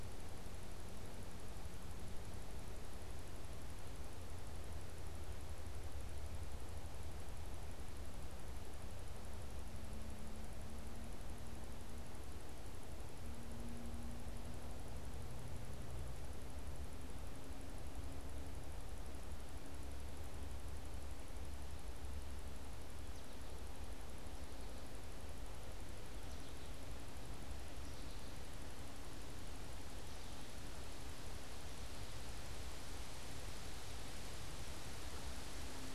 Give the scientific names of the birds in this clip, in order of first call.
Spinus tristis